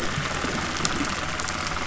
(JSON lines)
{"label": "anthrophony, boat engine", "recorder": "SoundTrap 300"}